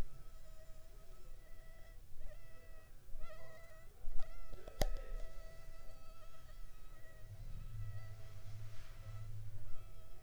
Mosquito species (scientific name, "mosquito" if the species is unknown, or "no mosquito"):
Anopheles funestus s.s.